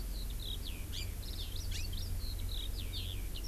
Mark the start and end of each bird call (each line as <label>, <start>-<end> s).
Eurasian Skylark (Alauda arvensis), 0.0-3.5 s
Hawaii Amakihi (Chlorodrepanis virens), 0.9-1.1 s
Hawaii Amakihi (Chlorodrepanis virens), 1.5-2.1 s